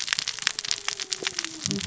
{"label": "biophony, cascading saw", "recorder": "SoundTrap 600 or HydroMoth"}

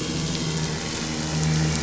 {"label": "anthrophony, boat engine", "recorder": "SoundTrap 500"}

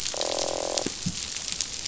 {"label": "biophony, croak", "recorder": "SoundTrap 500"}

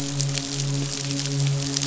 {"label": "biophony, midshipman", "recorder": "SoundTrap 500"}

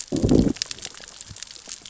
{"label": "biophony, growl", "recorder": "SoundTrap 600 or HydroMoth"}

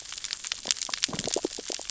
{"label": "biophony, sea urchins (Echinidae)", "recorder": "SoundTrap 600 or HydroMoth"}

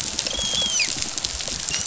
{"label": "biophony, rattle response", "recorder": "SoundTrap 500"}
{"label": "biophony, dolphin", "recorder": "SoundTrap 500"}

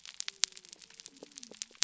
{"label": "biophony", "recorder": "SoundTrap 300"}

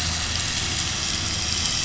{"label": "anthrophony, boat engine", "recorder": "SoundTrap 500"}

